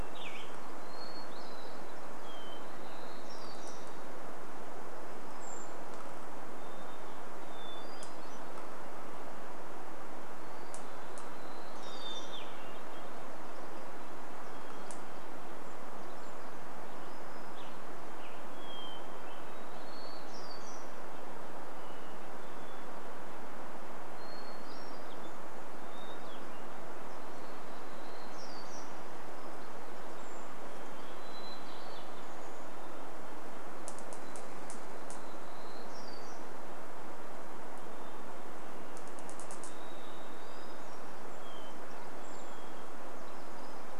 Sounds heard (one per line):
warbler song
Varied Thrush song
Western Tanager song
Hermit Thrush call
Hermit Thrush song
unidentified sound
Chestnut-backed Chickadee call
Brown Creeper call
Red-breasted Nuthatch song